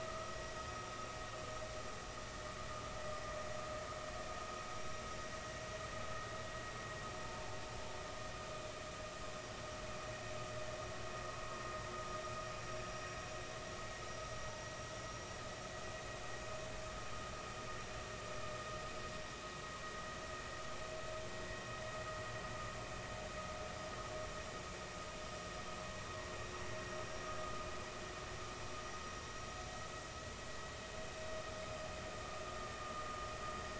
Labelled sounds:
0.5	0.7	vessel noise, 5.0 to 5.1 kHz
4.4	4.7	vessel noise, 5.6 to 5.7 kHz
7.2	7.5	vessel noise, 0.80 to 0.96 kHz

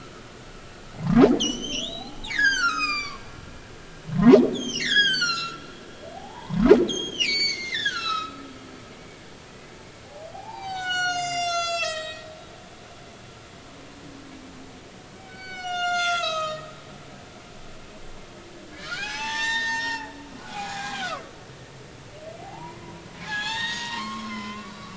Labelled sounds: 1.4	3.3	humpback whale, 0.80 to 8.0 kHz
4.1	5.6	humpback whale, 0.90 to 7.9 kHz
6.1	8.4	humpback whale, 0.80 to 7.2 kHz
9.5	12.3	humpback whale, 0.80 to 8.0 kHz
15.1	16.7	humpback whale, 1.2 to 7.9 kHz
18.7	20.1	humpback whale, 0.80 to 7.5 kHz
20.4	21.3	humpback whale, 0.80 to 1.7 kHz
22.4	24.9	humpback whale, 0.80 to 7.3 kHz

